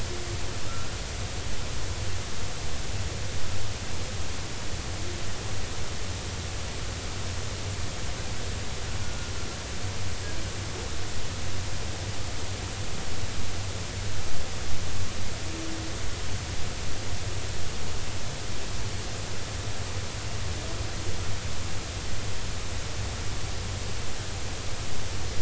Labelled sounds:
0.7	0.9	humpback whale, 1.3 to 1.4 kHz
9.0	9.3	humpback whale, 1.4 to 1.5 kHz

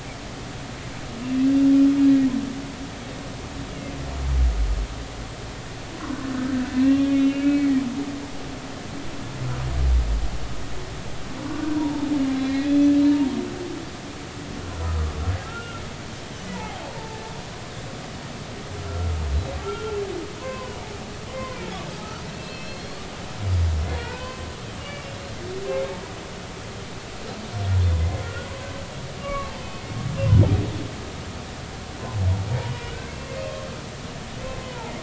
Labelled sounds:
6.4	7.7	humpback whale, 1.5 to 3.4 kHz
11.7	13.3	humpback whale, 0.80 to 4.1 kHz
14.6	15.8	humpback whale, 1.3 to 1.5 kHz
16.5	17.2	humpback whale, 0.80 to 0.99 kHz
18.8	20.0	humpback whale, 1.2 to 4.0 kHz
20.4	21.6	humpback whale, 0.80 to 2.1 kHz
22.0	23.0	humpback whale, 1.2 to 4.5 kHz
24.0	24.5	humpback whale, 0.86 to 3.1 kHz
24.8	25.2	humpback whale, 2.7 to 2.9 kHz
28.0	28.5	humpback whale, 1.3 to 2.1 kHz
29.2	29.8	humpback whale, 1.1 to 3.2 kHz
33.4	34.2	humpback whale, 1.4 to 2.6 kHz
34.6	34.9	humpback whale, 0.80 to 1.1 kHz

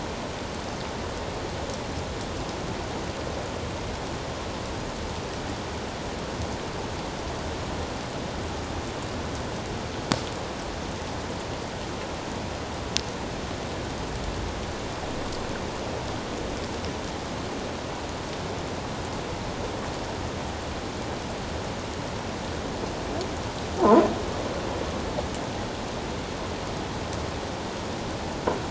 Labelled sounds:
23.8	24.0	croaking sound likely from a nearby submerged object, 0.81 to 1.1 kHz

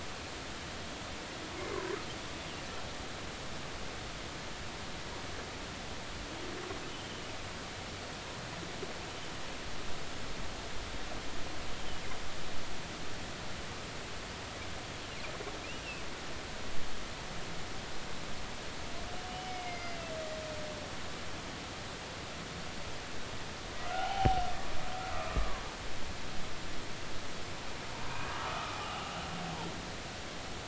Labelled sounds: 19.3	20.1	humpback whale, 2.0 to 5.2 kHz
23.9	24.4	humpback whale, 0.80 to 3.2 kHz
25.3	25.6	humpback whale, 0.93 to 1.3 kHz
27.9	29.2	humpback whale, 0.80 to 3.1 kHz

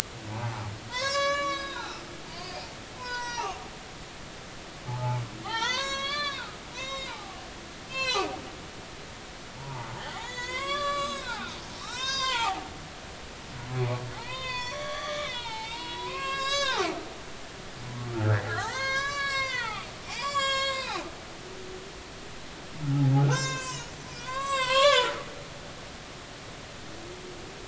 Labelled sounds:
0.3	2.7	humpback whale, 0.80 to 8.0 kHz
3.0	3.6	humpback whale, 0.80 to 6.5 kHz
4.9	7.3	humpback whale, 0.80 to 7.3 kHz
7.9	8.3	humpback whale, 0.80 to 6.4 kHz
9.6	11.5	humpback whale, 0.80 to 7.5 kHz
11.8	13.3	humpback whale, 0.80 to 7.6 kHz
13.7	17.1	humpback whale, 0.80 to 8.0 kHz
18.1	21.1	humpback whale, 0.80 to 8.0 kHz
23.2	25.2	humpback whale, 0.80 to 7.9 kHz

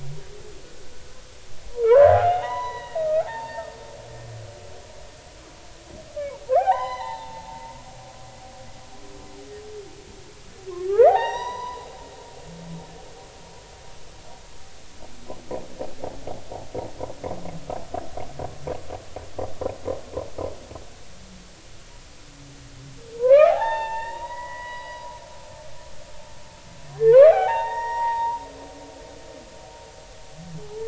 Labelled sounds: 1.7	3.7	humpback whale, 0.80 to 6.0 kHz
6.5	8.1	humpback whale, 0.80 to 4.1 kHz
10.9	11.9	humpback whale, 0.80 to 6.0 kHz
23.2	25.1	humpback whale, 0.80 to 5.5 kHz
27.0	28.4	humpback whale, 0.80 to 5.7 kHz

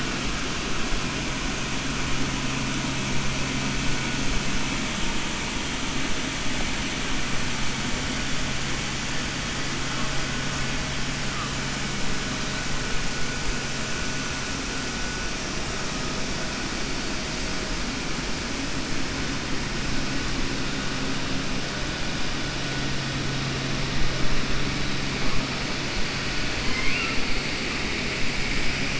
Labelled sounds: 26.6	27.2	killer whale, 1.0 to 3.4 kHz

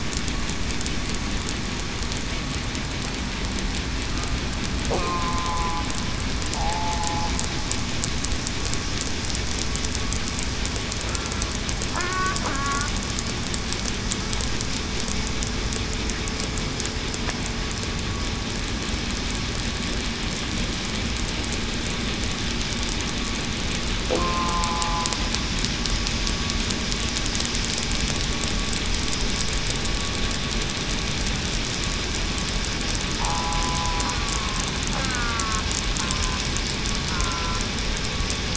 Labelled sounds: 5.0	5.8	killer whale, southern resident, 0.80 to 1.2 kHz
6.5	7.1	killer whale, southern resident, 0.70 to 0.89 kHz
11.9	12.9	killer whale, southern resident, 0.96 to 1.9 kHz
24.2	25.1	killer whale, southern resident, 0.82 to 1.1 kHz
33.2	33.5	killer whale, southern resident, 0.91 to 1.0 kHz
35.0	35.4	killer whale, southern resident, 1.1 to 1.6 kHz
37.1	37.6	killer whale, southern resident, 0.98 to 1.1 kHz

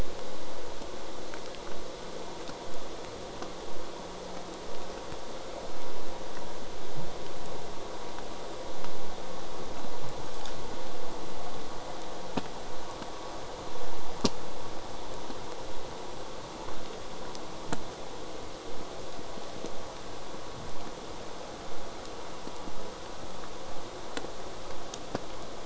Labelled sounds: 20.6	25.6	vessel noise, 0.04 to 8.0 kHz

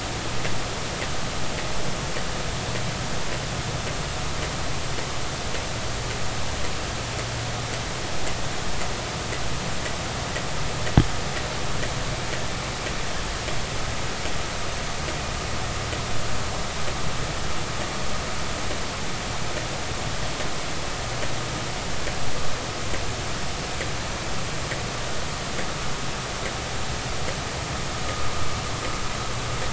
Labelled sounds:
28.1	28.3	vessel noise, 1.2 to 1.3 kHz

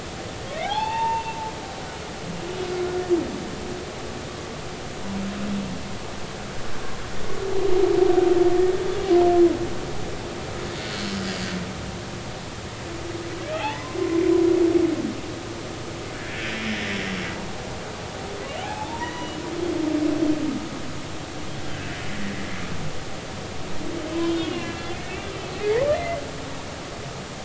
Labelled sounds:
0.6	1.3	humpback whale, 0.80 to 4.6 kHz
13.4	14.0	humpback whale, 0.80 to 3.6 kHz
18.6	19.4	humpback whale, 0.80 to 3.9 kHz
24.2	26.2	humpback whale, 1.6 to 3.4 kHz

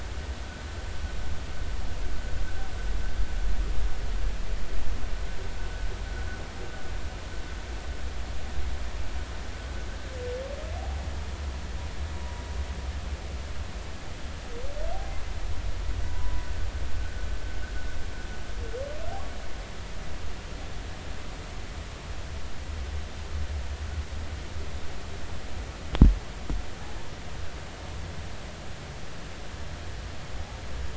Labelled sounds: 10.8	11.0	humpback whale, 0.80 to 0.86 kHz
16.1	16.4	humpback whale, 0.93 to 1.0 kHz

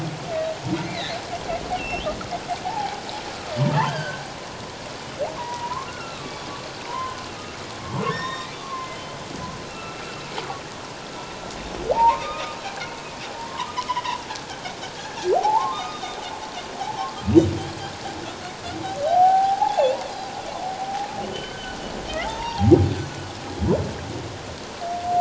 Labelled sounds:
0.8	1.2	humpback whale, 1.7 to 4.3 kHz
1.7	2.0	humpback whale, 2.6 to 3.0 kHz
2.6	3.0	humpback whale, 0.78 to 0.97 kHz
3.6	4.3	humpback whale, 0.81 to 3.3 kHz
5.4	6.3	humpback whale, 0.91 to 2.0 kHz
6.9	7.2	humpback whale, 0.91 to 1.1 kHz
8.1	9.0	humpback whale, 0.97 to 3.8 kHz
9.7	10.0	humpback whale, 1.2 to 2.8 kHz
11.9	12.6	humpback whale, 0.78 to 3.8 kHz
13.5	14.2	humpback whale, 0.88 to 2.2 kHz
15.3	16.2	humpback whale, 0.78 to 5.0 kHz
16.8	17.1	humpback whale, 0.78 to 0.94 kHz
19.1	19.9	humpback whale, 0.78 to 0.97 kHz
21.2	22.7	humpback whale, 0.78 to 3.8 kHz

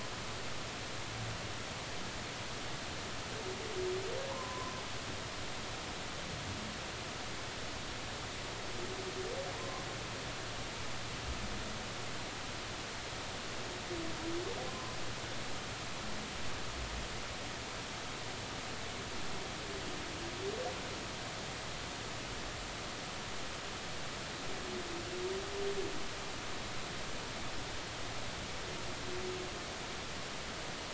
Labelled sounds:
4.3	4.8	humpback whale, 0.83 to 1.1 kHz
9.5	9.8	humpback whale, 0.83 to 1.2 kHz

